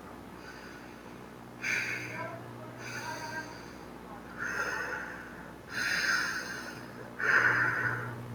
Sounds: Sigh